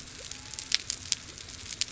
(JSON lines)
{"label": "biophony", "recorder": "SoundTrap 300"}